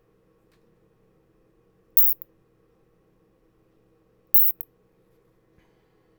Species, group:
Isophya obtusa
Orthoptera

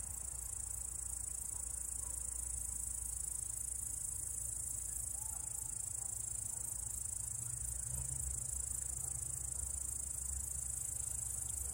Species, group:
Tettigonia cantans
Orthoptera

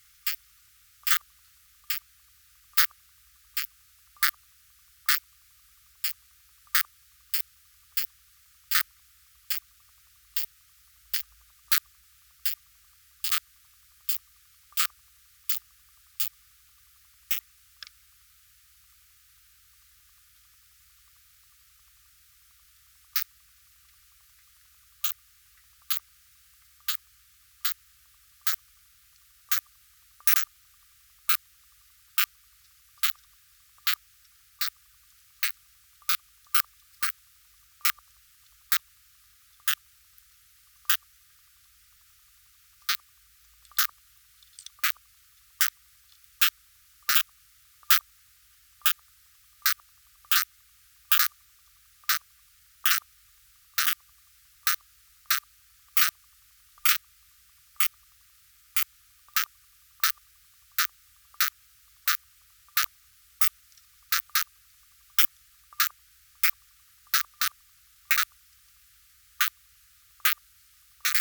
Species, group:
Poecilimon zimmeri
Orthoptera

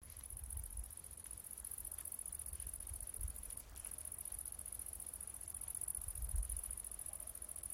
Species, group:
Tettigonia viridissima
Orthoptera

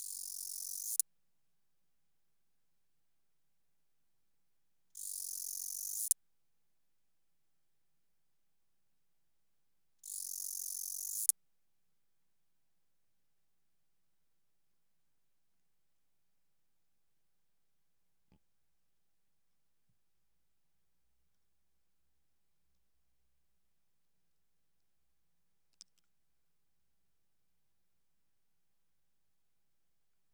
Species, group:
Acrometopa macropoda
Orthoptera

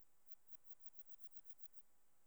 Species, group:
Phaneroptera falcata
Orthoptera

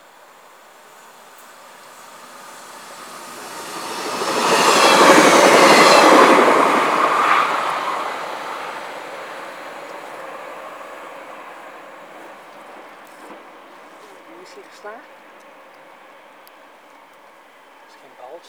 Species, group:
Gomphocerippus rufus
Orthoptera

